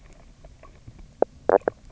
{"label": "biophony, knock croak", "recorder": "SoundTrap 300"}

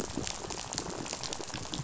{"label": "biophony, rattle", "recorder": "SoundTrap 500"}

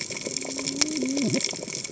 {"label": "biophony, cascading saw", "recorder": "HydroMoth"}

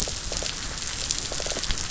{"label": "biophony", "recorder": "SoundTrap 500"}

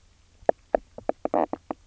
{"label": "biophony, knock croak", "recorder": "SoundTrap 300"}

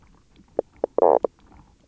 {"label": "biophony, knock croak", "recorder": "SoundTrap 300"}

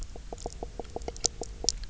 {"label": "biophony, knock croak", "recorder": "SoundTrap 300"}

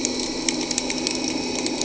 {"label": "anthrophony, boat engine", "recorder": "HydroMoth"}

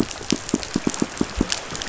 {"label": "biophony, pulse", "recorder": "SoundTrap 500"}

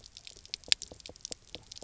{"label": "biophony, knock", "recorder": "SoundTrap 300"}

